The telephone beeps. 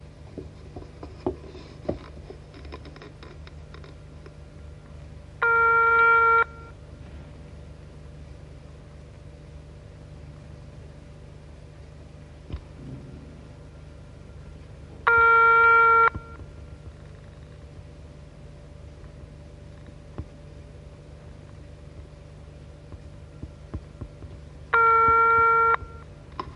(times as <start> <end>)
5.4 6.5, 15.0 16.2, 24.6 25.8